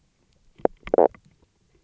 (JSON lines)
{"label": "biophony, knock croak", "recorder": "SoundTrap 300"}